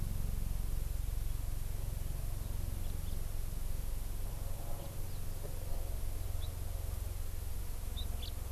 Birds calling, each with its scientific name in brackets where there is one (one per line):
House Finch (Haemorhous mexicanus)